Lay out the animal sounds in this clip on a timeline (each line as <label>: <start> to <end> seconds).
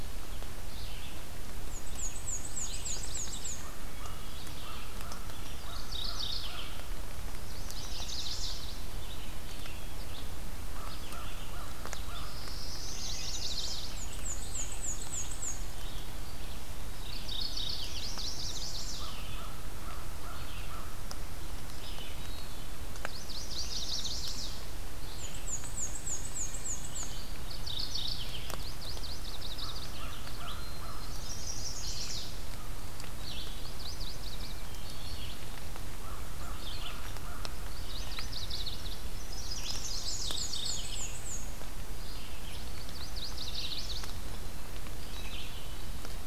Red-eyed Vireo (Vireo olivaceus): 0.0 to 39.8 seconds
Black-and-white Warbler (Mniotilta varia): 1.6 to 3.8 seconds
Yellow-rumped Warbler (Setophaga coronata): 2.3 to 3.6 seconds
American Crow (Corvus brachyrhynchos): 3.5 to 7.0 seconds
Wood Thrush (Hylocichla mustelina): 3.8 to 4.5 seconds
Mourning Warbler (Geothlypis philadelphia): 5.5 to 6.8 seconds
Chestnut-sided Warbler (Setophaga pensylvanica): 7.2 to 8.7 seconds
Yellow-rumped Warbler (Setophaga coronata): 7.5 to 8.9 seconds
American Crow (Corvus brachyrhynchos): 10.5 to 12.3 seconds
Black-throated Blue Warbler (Setophaga caerulescens): 11.5 to 13.3 seconds
Chestnut-sided Warbler (Setophaga pensylvanica): 12.7 to 13.9 seconds
Yellow-rumped Warbler (Setophaga coronata): 12.8 to 14.0 seconds
Black-and-white Warbler (Mniotilta varia): 13.9 to 15.8 seconds
Mourning Warbler (Geothlypis philadelphia): 16.8 to 18.1 seconds
Yellow-rumped Warbler (Setophaga coronata): 17.5 to 18.9 seconds
Chestnut-sided Warbler (Setophaga pensylvanica): 17.8 to 19.3 seconds
American Crow (Corvus brachyrhynchos): 18.9 to 21.4 seconds
Hermit Thrush (Catharus guttatus): 22.1 to 22.9 seconds
Yellow-rumped Warbler (Setophaga coronata): 22.8 to 24.2 seconds
Chestnut-sided Warbler (Setophaga pensylvanica): 23.5 to 24.7 seconds
Black-and-white Warbler (Mniotilta varia): 25.1 to 27.3 seconds
Mourning Warbler (Geothlypis philadelphia): 27.4 to 28.5 seconds
Yellow-rumped Warbler (Setophaga coronata): 28.4 to 30.0 seconds
American Crow (Corvus brachyrhynchos): 29.4 to 31.4 seconds
Hermit Thrush (Catharus guttatus): 30.5 to 31.6 seconds
Chestnut-sided Warbler (Setophaga pensylvanica): 31.0 to 32.5 seconds
Yellow-rumped Warbler (Setophaga coronata): 33.4 to 34.8 seconds
American Crow (Corvus brachyrhynchos): 35.9 to 37.7 seconds
Yellow-rumped Warbler (Setophaga coronata): 37.6 to 39.1 seconds
Chestnut-sided Warbler (Setophaga pensylvanica): 39.2 to 40.2 seconds
Mourning Warbler (Geothlypis philadelphia): 39.9 to 41.2 seconds
Black-and-white Warbler (Mniotilta varia): 39.9 to 41.6 seconds
Red-eyed Vireo (Vireo olivaceus): 40.7 to 46.3 seconds
Yellow-rumped Warbler (Setophaga coronata): 42.5 to 44.2 seconds